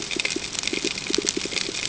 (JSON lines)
{"label": "ambient", "recorder": "HydroMoth"}